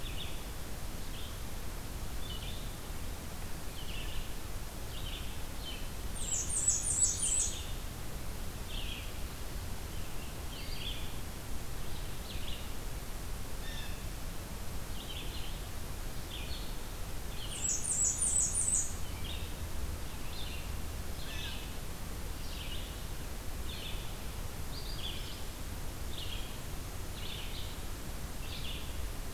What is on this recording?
Red-eyed Vireo, Blackburnian Warbler, Blue Jay